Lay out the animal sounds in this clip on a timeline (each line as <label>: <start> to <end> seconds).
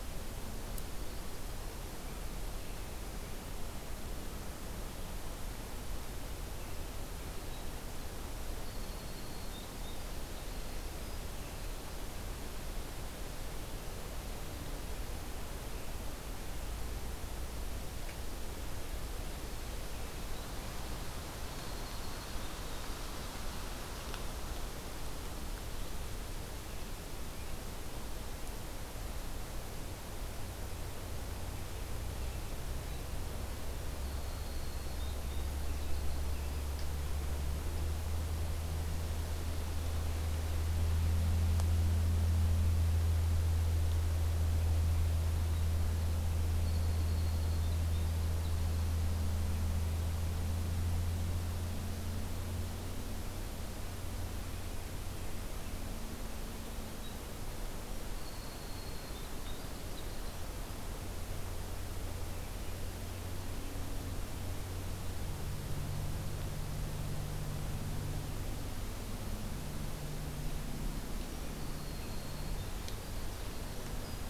Winter Wren (Troglodytes hiemalis): 8.5 to 11.9 seconds
Winter Wren (Troglodytes hiemalis): 21.3 to 23.1 seconds
Winter Wren (Troglodytes hiemalis): 33.9 to 36.2 seconds
Winter Wren (Troglodytes hiemalis): 46.5 to 49.1 seconds
Winter Wren (Troglodytes hiemalis): 58.0 to 60.4 seconds
Winter Wren (Troglodytes hiemalis): 71.1 to 74.3 seconds